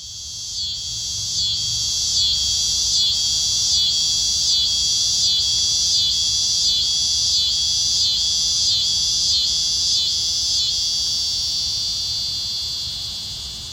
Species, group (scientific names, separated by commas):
Neotibicen pruinosus, Cicadidae